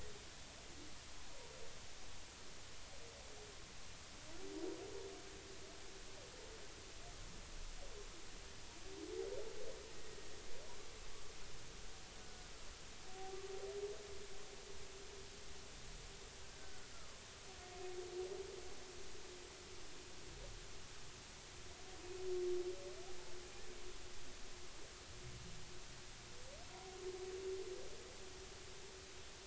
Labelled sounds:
16.9	17.2	killer whale, 0.99 to 1.4 kHz

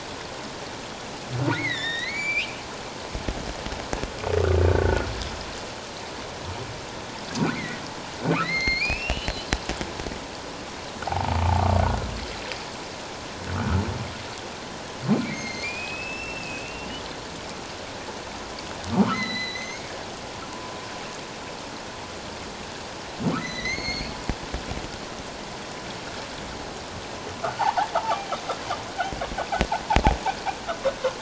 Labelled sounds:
1.5	2.6	humpback whale, 1.7 to 7.0 kHz
4.7	5.1	humpback whale, 1.3 to 1.6 kHz
7.5	9.5	humpback whale, 1.8 to 6.5 kHz
11.1	11.4	humpback whale, 0.78 to 0.97 kHz
11.8	12.1	humpback whale, 1.3 to 1.6 kHz
13.5	13.8	humpback whale, 1.2 to 1.6 kHz
15.1	17.0	humpback whale, 1.9 to 6.5 kHz
18.9	19.9	humpback whale, 1.0 to 6.7 kHz
23.4	24.1	humpback whale, 1.7 to 6.6 kHz
27.6	28.3	humpback whale, 0.78 to 1.2 kHz

